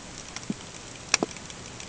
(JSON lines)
{"label": "ambient", "recorder": "HydroMoth"}